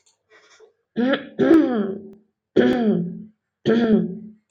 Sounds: Throat clearing